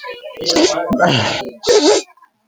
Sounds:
Sneeze